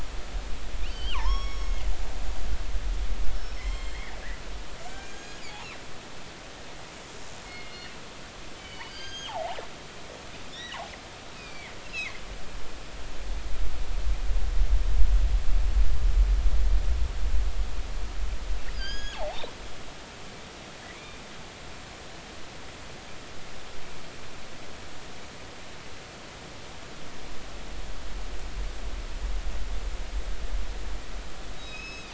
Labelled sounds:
0.8	1.9	killer whale, northern resident, G clan, GI subclan, call N23i, 0.80 to 6.7 kHz
3.3	4.0	killer whale, northern resident, G clan, GI subclan, call N23i, 0.99 to 7.6 kHz
4.8	5.4	killer whale, northern resident, G clan, call N48, 1.5 to 7.3 kHz
4.9	5.1	killer whale, northern resident, G clan, GI subclan, call N23i, 1.7 to 2.3 kHz
7.5	7.9	killer whale, northern resident, G clan, call N24ii, 2.1 to 2.9 kHz
8.6	9.1	killer whale, northern resident, G clan, call N24ii, 2.1 to 4.6 kHz
8.9	9.6	killer whale, northern resident, G clan, GG subclan, call N29, 0.80 to 8.0 kHz
9.9	10.3	killer whale, northern resident, G clan, GG subclan, call N29, 1.5 to 1.7 kHz
10.5	10.8	killer whale, northern resident, G clan, 1.6 to 4.0 kHz
11.3	12.2	killer whale, northern resident, G clan, 1.9 to 4.7 kHz
18.7	19.4	killer whale, northern resident, G clan, GG subclan, call N29, 0.80 to 6.8 kHz
20.9	21.2	killer whale, northern resident, G clan, call N23i, 2.2 to 2.5 kHz
31.5	32.1	killer whale, northern resident, G clan, 2.4 to 6.6 kHz

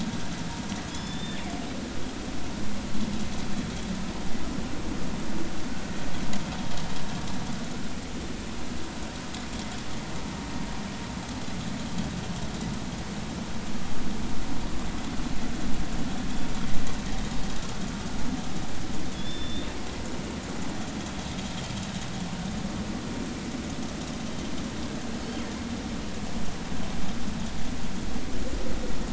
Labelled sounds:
0.9	1.4	killer whale, northern resident, G clan, GG subclan, call N28, 1.7 to 5.4 kHz
19.1	19.7	killer whale, northern resident, G clan, GG subclan, call N28, 3.3 to 3.7 kHz

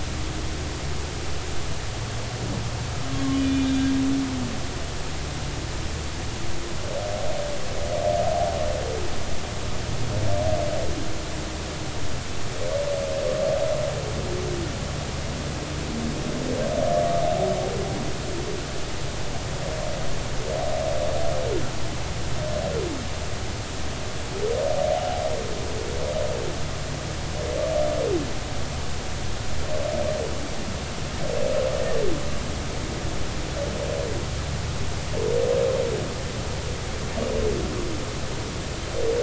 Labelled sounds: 3.4	3.8	humpback whale, 2.4 to 3.7 kHz

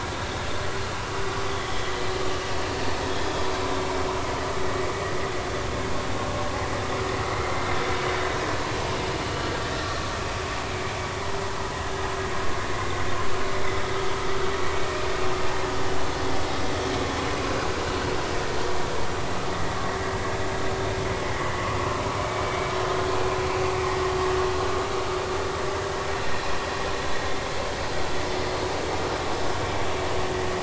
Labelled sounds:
1.5	1.9	vessel noise, 3.1 to 3.5 kHz
7.2	7.5	vessel noise, 1.9 to 2.2 kHz
9.7	10.0	vessel noise, 1.3 to 1.4 kHz
19.5	19.8	vessel noise, 1.8 to 2.0 kHz
22.2	22.7	vessel noise, 2.2 to 2.4 kHz
23.1	23.4	vessel noise, 2.3 to 2.5 kHz

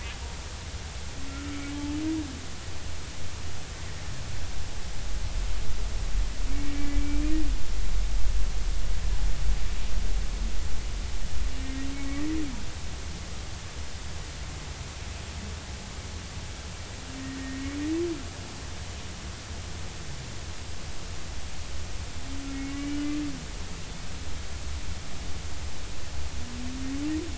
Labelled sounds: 1.3	1.7	humpback whale, 1.2 to 1.5 kHz
6.5	7.2	humpback whale, 2.0 to 2.4 kHz
17.4	17.7	humpback whale, 1.8 to 2.0 kHz
22.5	23.1	humpback whale, 2.1 to 2.9 kHz

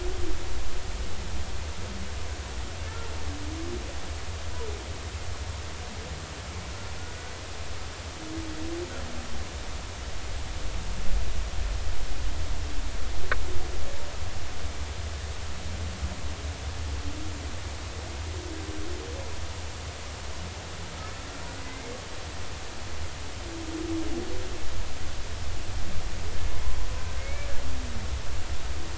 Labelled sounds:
7.0	7.3	killer whale, Bigg's (transient), 1.4 to 1.5 kHz
21.6	21.9	killer whale, Bigg's (transient), 2.0 to 2.2 kHz
27.2	27.5	humpback whale, 2.1 to 2.4 kHz

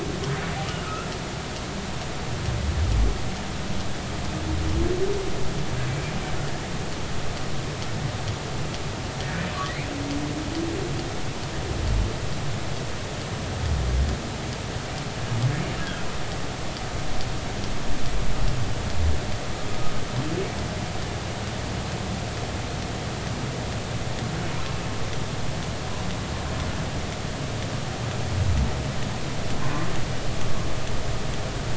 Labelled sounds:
0.8	1.1	humpback whale, 1.2 to 1.4 kHz
15.8	16.1	humpback whale, 1.3 to 1.7 kHz

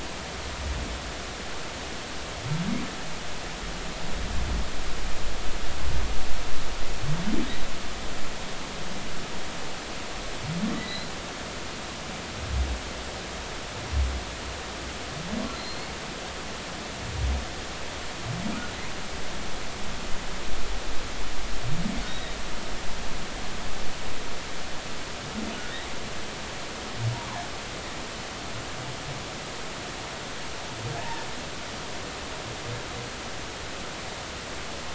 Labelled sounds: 10.8	11.1	humpback whale, 1.9 to 4.2 kHz
15.5	15.9	humpback whale, 4.0 to 4.4 kHz
22.1	22.3	humpback whale, 3.6 to 3.9 kHz

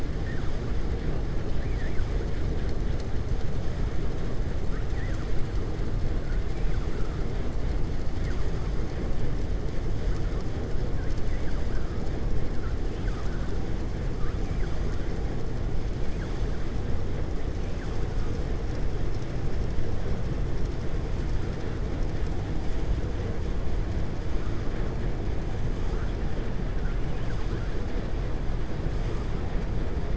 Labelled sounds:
1.6	2.1	vessel noise, 1.5 to 2.6 kHz
12.8	13.4	vessel noise, 1.2 to 3.3 kHz

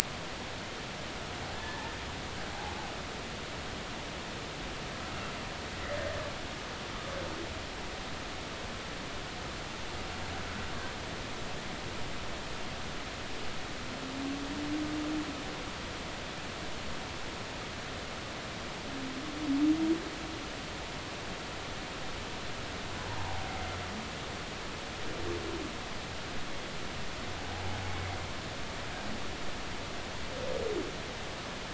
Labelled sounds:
1.5	2.0	humpback whale, 1.6 to 1.9 kHz

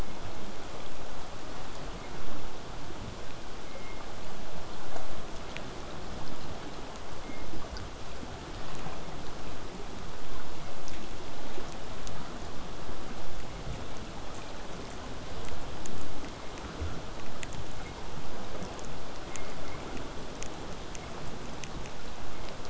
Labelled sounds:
17.2	22.2	vessel noise, 0 to 8.0 kHz

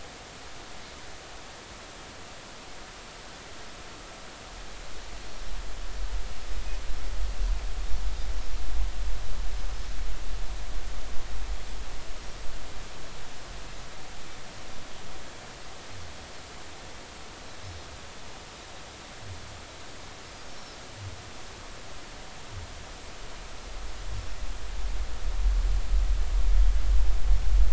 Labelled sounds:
20.5	20.8	Pacific white-sided dolphin, 5.0 to 5.7 kHz

